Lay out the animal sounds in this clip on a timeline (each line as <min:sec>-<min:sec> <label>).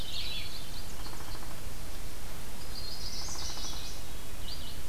0:00.0-0:00.6 Red-eyed Vireo (Vireo olivaceus)
0:00.0-0:00.9 Hermit Thrush (Catharus guttatus)
0:00.0-0:01.4 Indigo Bunting (Passerina cyanea)
0:00.9-0:01.7 Downy Woodpecker (Dryobates pubescens)
0:02.5-0:04.0 Chestnut-sided Warbler (Setophaga pensylvanica)
0:03.1-0:03.9 Downy Woodpecker (Dryobates pubescens)
0:03.3-0:04.4 Hermit Thrush (Catharus guttatus)
0:04.4-0:04.9 Red-eyed Vireo (Vireo olivaceus)